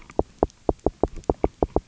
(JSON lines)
{"label": "biophony, knock", "recorder": "SoundTrap 300"}